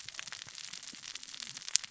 {"label": "biophony, cascading saw", "recorder": "SoundTrap 600 or HydroMoth"}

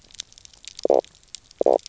{"label": "biophony, knock croak", "recorder": "SoundTrap 300"}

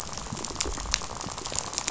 {"label": "biophony, rattle", "recorder": "SoundTrap 500"}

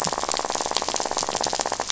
{"label": "biophony, rattle", "recorder": "SoundTrap 500"}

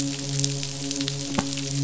{"label": "biophony, midshipman", "recorder": "SoundTrap 500"}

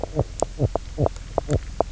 {"label": "biophony, knock croak", "recorder": "SoundTrap 300"}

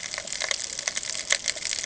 {"label": "ambient", "recorder": "HydroMoth"}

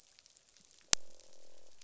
{"label": "biophony, croak", "recorder": "SoundTrap 500"}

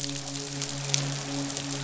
{"label": "biophony, midshipman", "recorder": "SoundTrap 500"}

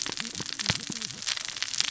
{"label": "biophony, cascading saw", "recorder": "SoundTrap 600 or HydroMoth"}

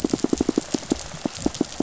{"label": "biophony, pulse", "recorder": "SoundTrap 500"}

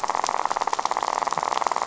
{"label": "biophony, rattle", "recorder": "SoundTrap 500"}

